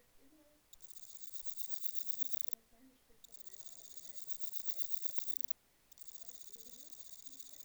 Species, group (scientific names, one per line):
Parnassiana tymphrestos
Orthoptera